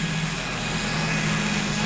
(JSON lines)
{"label": "anthrophony, boat engine", "recorder": "SoundTrap 500"}